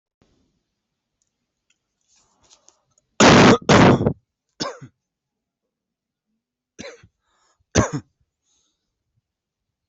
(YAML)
expert_labels:
- quality: good
  cough_type: dry
  dyspnea: false
  wheezing: true
  stridor: false
  choking: false
  congestion: false
  nothing: false
  diagnosis: obstructive lung disease
  severity: mild
age: 20
gender: male
respiratory_condition: true
fever_muscle_pain: false
status: symptomatic